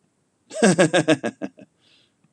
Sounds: Laughter